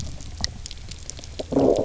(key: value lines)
label: biophony, low growl
recorder: SoundTrap 300